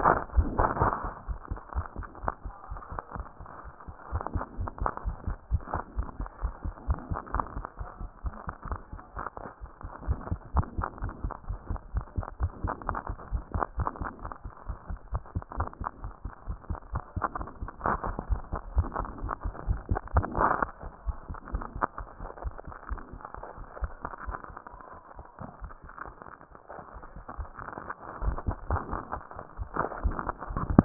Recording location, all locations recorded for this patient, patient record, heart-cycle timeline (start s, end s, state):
tricuspid valve (TV)
aortic valve (AV)+pulmonary valve (PV)+tricuspid valve (TV)+mitral valve (MV)
#Age: Adolescent
#Sex: Male
#Height: nan
#Weight: nan
#Pregnancy status: False
#Murmur: Absent
#Murmur locations: nan
#Most audible location: nan
#Systolic murmur timing: nan
#Systolic murmur shape: nan
#Systolic murmur grading: nan
#Systolic murmur pitch: nan
#Systolic murmur quality: nan
#Diastolic murmur timing: nan
#Diastolic murmur shape: nan
#Diastolic murmur grading: nan
#Diastolic murmur pitch: nan
#Diastolic murmur quality: nan
#Outcome: Normal
#Campaign: 2015 screening campaign
0.00	10.06	unannotated
10.06	10.16	S1
10.16	10.29	systole
10.29	10.40	S2
10.40	10.56	diastole
10.56	10.68	S1
10.68	10.78	systole
10.78	10.86	S2
10.86	11.02	diastole
11.02	11.12	S1
11.12	11.24	systole
11.24	11.32	S2
11.32	11.50	diastole
11.50	11.60	S1
11.60	11.70	systole
11.70	11.78	S2
11.78	11.94	diastole
11.94	12.06	S1
12.06	12.17	systole
12.17	12.26	S2
12.26	12.40	diastole
12.40	12.52	S1
12.52	12.63	systole
12.63	12.74	S2
12.74	12.88	diastole
12.88	12.96	S1
12.96	13.08	systole
13.08	13.16	S2
13.16	13.31	diastole
13.31	13.43	S1
13.43	13.52	systole
13.52	13.64	S2
13.64	13.78	diastole
13.78	13.88	S1
13.88	13.99	systole
13.99	14.08	S2
14.08	14.24	diastole
14.24	14.29	S1
14.29	30.85	unannotated